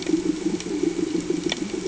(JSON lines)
{"label": "anthrophony, boat engine", "recorder": "HydroMoth"}